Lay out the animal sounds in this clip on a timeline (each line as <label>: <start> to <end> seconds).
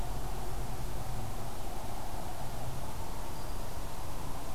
Black-throated Green Warbler (Setophaga virens): 3.2 to 4.0 seconds